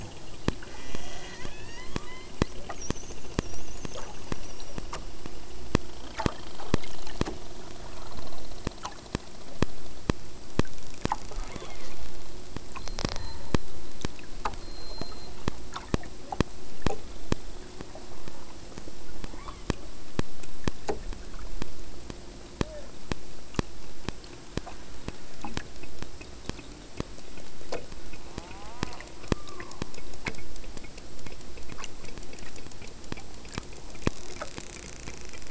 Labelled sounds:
0.6	2.4	killer whale, southern Alaska resident, 0.75 to 8.0 kHz
11.4	12.1	killer whale, southern Alaska resident, 1.7 to 5.1 kHz
19.2	19.8	killer whale, southern Alaska resident, 0.67 to 5.0 kHz
28.1	29.9	killer whale, southern Alaska resident, 0.44 to 1.6 kHz

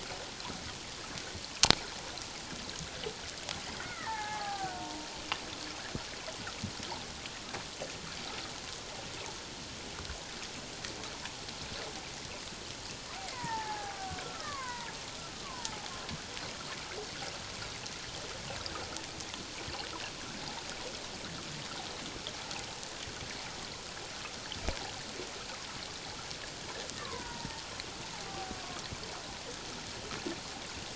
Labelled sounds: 3.8	5.1	killer whale, Bigg's (transient), 0.78 to 2.3 kHz
13.2	15.9	killer whale, Bigg's (transient), 0.78 to 2.4 kHz
27.0	27.6	killer whale, Bigg's (transient), 0.84 to 1.2 kHz
28.1	28.5	killer whale, Bigg's (transient), 0.78 to 0.94 kHz

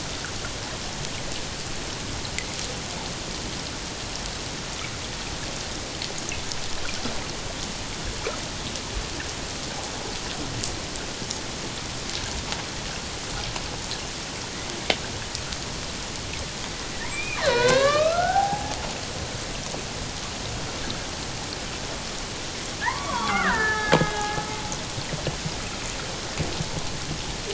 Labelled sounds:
17.1	18.8	killer whale, Bigg's (transient), 0.78 to 8.0 kHz
22.8	24.4	killer whale, Bigg's (transient), 0.78 to 3.6 kHz

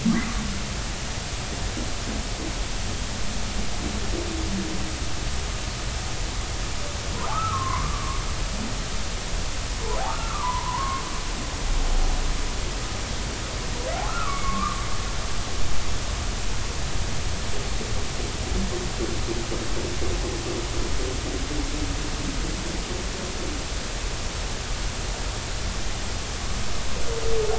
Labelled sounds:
7.3	8.2	humpback whale, 0.96 to 1.4 kHz
10.1	11.0	humpback whale, 0.86 to 1.4 kHz
14.1	14.8	humpback whale, 1.0 to 2.3 kHz

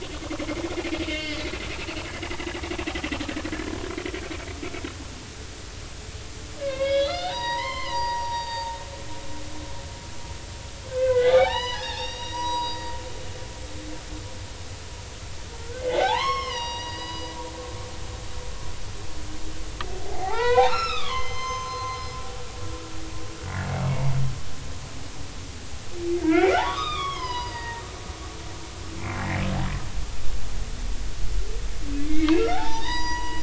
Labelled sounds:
0.4	1.5	humpback whale, 1.4 to 3.2 kHz
2.3	2.7	humpback whale, 1.9 to 2.1 kHz
6.6	8.8	humpback whale, 0.80 to 5.8 kHz
10.9	12.9	humpback whale, 0.80 to 5.9 kHz
15.6	17.3	humpback whale, 0.80 to 5.9 kHz
20.1	22.0	humpback whale, 0.80 to 6.3 kHz
26.2	27.8	humpback whale, 0.80 to 6.0 kHz
29.0	29.2	humpback whale, 2.0 to 2.5 kHz
32.1	33.4	humpback whale, 0.80 to 6.0 kHz

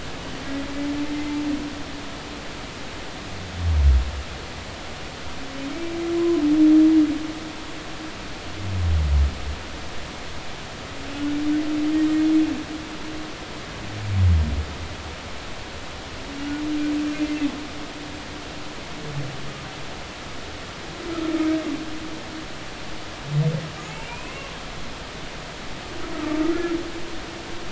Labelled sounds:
6.2	6.4	humpback whale, 0.96 to 1.1 kHz
17.1	17.4	humpback whale, 2.0 to 2.2 kHz
23.8	24.4	humpback whale, 0.90 to 2.7 kHz
26.1	26.4	humpback whale, 1.1 to 1.3 kHz

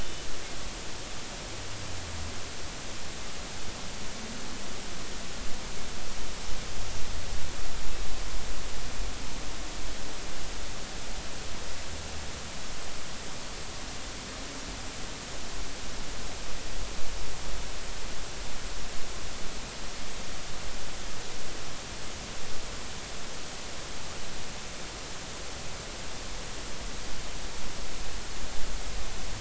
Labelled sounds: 0.0	0.2	Pacific white-sided dolphin, 2.9 to 3.0 kHz

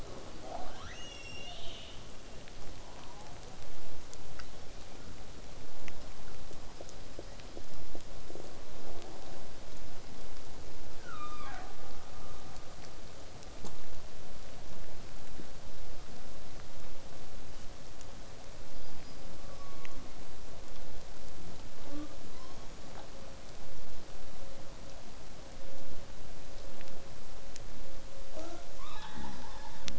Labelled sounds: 0.4	2.2	killer whale, southern resident, 0.31 to 7.8 kHz
2.9	3.6	killer whale, southern resident, 0.31 to 1.4 kHz
4.3	5.1	killer whale, southern resident, 1.0 to 6.7 kHz
18.7	19.7	killer whale, southern resident, whistle, 4.6 to 5.3 kHz
19.3	20.2	killer whale, southern resident, call S16, 0.89 to 3.6 kHz
21.8	22.2	killer whale, southern resident, J pod, call S05, 0.19 to 5.4 kHz
28.3	29.9	killer whale, southern resident, call S10, 0.08 to 7.2 kHz

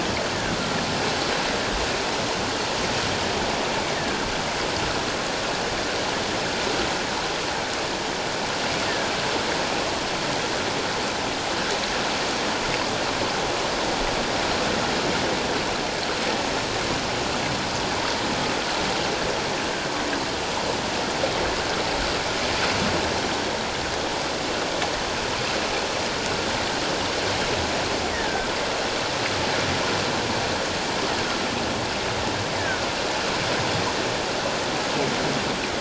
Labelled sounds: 3.9	4.3	killer whale, offshore, call OFF17, 1.5 to 1.9 kHz
28.1	28.5	killer whale, offshore, call OFF17, 1.5 to 2.0 kHz
32.6	32.9	killer whale, offshore, call OFF17, 1.4 to 1.8 kHz

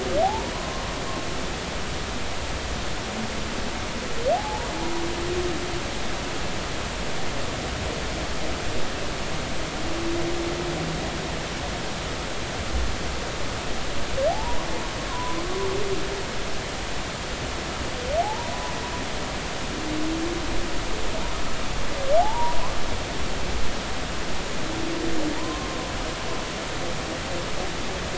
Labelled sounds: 0.2	0.8	humpback whale, 0.80 to 1.1 kHz
4.3	4.7	humpback whale, 0.80 to 0.99 kHz
14.3	15.4	humpback whale, 0.80 to 1.1 kHz
18.2	18.5	humpback whale, 0.80 to 0.99 kHz
22.2	22.6	humpback whale, 0.80 to 1.0 kHz
25.4	25.8	humpback whale, 0.86 to 1.1 kHz

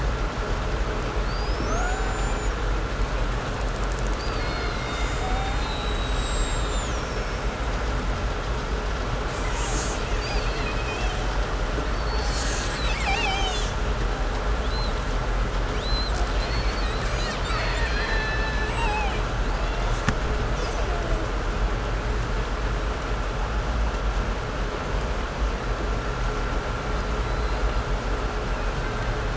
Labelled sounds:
1.1	7.6	killer whale, 0.47 to 8.0 kHz
9.3	11.5	killer whale, Bigg's (transient), 1.6 to 8.0 kHz
11.8	13.9	killer whale, Bigg's (transient), 0.54 to 8.0 kHz
14.4	21.3	killer whale, 0.45 to 8.0 kHz
26.9	27.9	killer whale, 3.4 to 5.1 kHz
28.4	29.3	killer whale, 1.2 to 3.2 kHz

